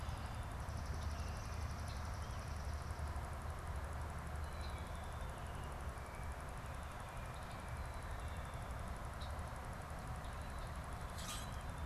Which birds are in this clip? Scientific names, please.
Melospiza georgiana, Agelaius phoeniceus, Quiscalus quiscula